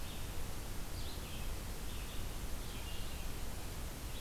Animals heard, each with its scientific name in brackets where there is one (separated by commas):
Red-eyed Vireo (Vireo olivaceus)